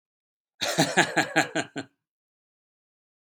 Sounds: Laughter